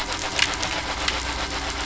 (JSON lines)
{"label": "anthrophony, boat engine", "recorder": "SoundTrap 500"}